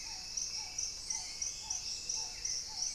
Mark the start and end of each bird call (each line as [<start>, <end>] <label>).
[0.00, 2.95] Black-tailed Trogon (Trogon melanurus)
[0.00, 2.95] Hauxwell's Thrush (Turdus hauxwelli)
[0.00, 2.95] Paradise Tanager (Tangara chilensis)
[0.27, 2.67] Dusky-throated Antshrike (Thamnomanes ardesiacus)
[1.67, 2.95] Gray-fronted Dove (Leptotila rufaxilla)